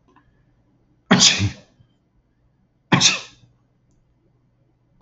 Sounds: Sneeze